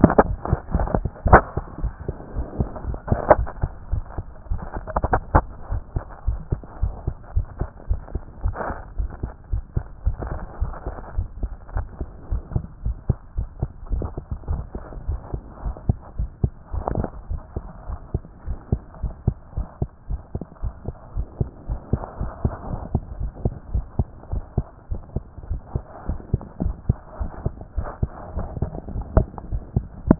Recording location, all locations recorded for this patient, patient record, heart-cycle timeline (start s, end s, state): tricuspid valve (TV)
aortic valve (AV)+pulmonary valve (PV)+tricuspid valve (TV)+mitral valve (MV)
#Age: Child
#Sex: Male
#Height: 124.0 cm
#Weight: 23.6 kg
#Pregnancy status: False
#Murmur: Absent
#Murmur locations: nan
#Most audible location: nan
#Systolic murmur timing: nan
#Systolic murmur shape: nan
#Systolic murmur grading: nan
#Systolic murmur pitch: nan
#Systolic murmur quality: nan
#Diastolic murmur timing: nan
#Diastolic murmur shape: nan
#Diastolic murmur grading: nan
#Diastolic murmur pitch: nan
#Diastolic murmur quality: nan
#Outcome: Normal
#Campaign: 2014 screening campaign
0.00	5.70	unannotated
5.70	5.82	S1
5.82	5.94	systole
5.94	6.04	S2
6.04	6.26	diastole
6.26	6.39	S1
6.39	6.50	systole
6.50	6.60	S2
6.60	6.82	diastole
6.82	6.94	S1
6.94	7.06	systole
7.06	7.14	S2
7.14	7.34	diastole
7.34	7.46	S1
7.46	7.60	systole
7.60	7.68	S2
7.68	7.88	diastole
7.88	8.00	S1
8.00	8.14	systole
8.14	8.22	S2
8.22	8.44	diastole
8.44	8.56	S1
8.56	8.68	systole
8.68	8.76	S2
8.76	8.98	diastole
8.98	9.10	S1
9.10	9.22	systole
9.22	9.32	S2
9.32	9.52	diastole
9.52	9.64	S1
9.64	9.76	systole
9.76	9.84	S2
9.84	10.04	diastole
10.04	10.16	S1
10.16	10.30	systole
10.30	10.40	S2
10.40	10.60	diastole
10.60	10.72	S1
10.72	10.86	systole
10.86	10.94	S2
10.94	11.16	diastole
11.16	11.28	S1
11.28	11.40	systole
11.40	11.50	S2
11.50	11.74	diastole
11.74	11.86	S1
11.86	12.00	systole
12.00	12.08	S2
12.08	12.30	diastole
12.30	12.42	S1
12.42	12.54	systole
12.54	12.64	S2
12.64	12.84	diastole
12.84	12.96	S1
12.96	13.08	systole
13.08	13.16	S2
13.16	13.36	diastole
13.36	13.48	S1
13.48	13.60	systole
13.60	13.70	S2
13.70	13.92	diastole
13.92	14.04	S1
14.04	14.16	systole
14.16	14.24	S2
14.24	14.50	diastole
14.50	14.62	S1
14.62	14.74	systole
14.74	14.82	S2
14.82	15.08	diastole
15.08	15.20	S1
15.20	15.32	systole
15.32	15.42	S2
15.42	15.64	diastole
15.64	15.76	S1
15.76	15.88	systole
15.88	15.96	S2
15.96	16.18	diastole
16.18	16.30	S1
16.30	16.42	systole
16.42	16.52	S2
16.52	16.74	diastole
16.74	16.84	S1
16.84	16.96	systole
16.96	17.06	S2
17.06	17.30	diastole
17.30	17.40	S1
17.40	17.56	systole
17.56	17.64	S2
17.64	17.88	diastole
17.88	17.98	S1
17.98	18.12	systole
18.12	18.22	S2
18.22	18.46	diastole
18.46	18.58	S1
18.58	18.72	systole
18.72	18.80	S2
18.80	19.02	diastole
19.02	19.14	S1
19.14	19.26	systole
19.26	19.36	S2
19.36	19.56	diastole
19.56	19.66	S1
19.66	19.80	systole
19.80	19.90	S2
19.90	20.10	diastole
20.10	20.20	S1
20.20	20.34	systole
20.34	20.44	S2
20.44	20.62	diastole
20.62	20.74	S1
20.74	20.86	systole
20.86	20.94	S2
20.94	21.16	diastole
21.16	21.26	S1
21.26	21.40	systole
21.40	21.48	S2
21.48	21.68	diastole
21.68	21.80	S1
21.80	21.92	systole
21.92	22.02	S2
22.02	22.20	diastole
22.20	22.32	S1
22.32	22.44	systole
22.44	22.54	S2
22.54	22.70	diastole
22.70	22.80	S1
22.80	22.94	systole
22.94	23.02	S2
23.02	23.20	diastole
23.20	23.32	S1
23.32	23.44	systole
23.44	23.54	S2
23.54	23.72	diastole
23.72	23.84	S1
23.84	23.98	systole
23.98	24.06	S2
24.06	24.32	diastole
24.32	24.44	S1
24.44	24.56	systole
24.56	24.66	S2
24.66	24.90	diastole
24.90	25.00	S1
25.00	25.14	systole
25.14	25.24	S2
25.24	25.48	diastole
25.48	25.60	S1
25.60	25.74	systole
25.74	25.84	S2
25.84	26.08	diastole
26.08	26.18	S1
26.18	26.32	systole
26.32	26.40	S2
26.40	26.62	diastole
26.62	26.74	S1
26.74	26.88	systole
26.88	26.98	S2
26.98	27.20	diastole
27.20	27.30	S1
27.30	27.44	systole
27.44	27.54	S2
27.54	27.76	diastole
27.76	27.88	S1
27.88	28.02	systole
28.02	28.10	S2
28.10	28.36	diastole
28.36	28.48	S1
28.48	28.60	systole
28.60	28.70	S2
28.70	28.92	diastole
28.92	30.19	unannotated